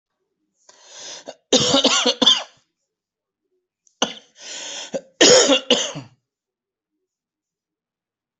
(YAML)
expert_labels:
- quality: ok
  cough_type: dry
  dyspnea: false
  wheezing: false
  stridor: false
  choking: false
  congestion: false
  nothing: true
  diagnosis: COVID-19
  severity: mild
age: 45
gender: male
respiratory_condition: true
fever_muscle_pain: false
status: symptomatic